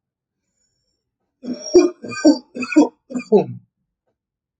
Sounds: Cough